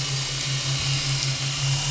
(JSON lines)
{"label": "anthrophony, boat engine", "recorder": "SoundTrap 500"}